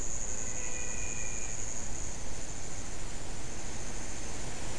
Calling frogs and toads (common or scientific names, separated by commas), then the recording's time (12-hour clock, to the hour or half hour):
menwig frog
~7pm